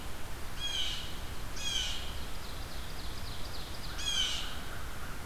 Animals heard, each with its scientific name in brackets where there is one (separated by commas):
American Crow (Corvus brachyrhynchos), Blue Jay (Cyanocitta cristata), Ovenbird (Seiurus aurocapilla)